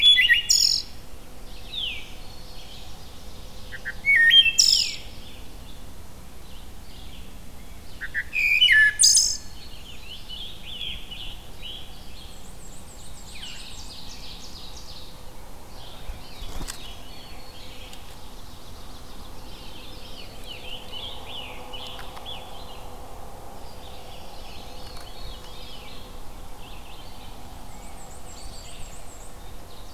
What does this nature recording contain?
Wood Thrush, Red-eyed Vireo, Veery, Ovenbird, Scarlet Tanager, Black-and-white Warbler, Black-throated Green Warbler